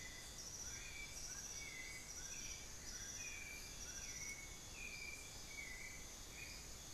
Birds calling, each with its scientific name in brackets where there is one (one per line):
Dull-capped Attila (Attila bolivianus)
White-necked Thrush (Turdus albicollis)
Amazonian Barred-Woodcreeper (Dendrocolaptes certhia)